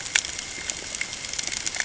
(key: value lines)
label: ambient
recorder: HydroMoth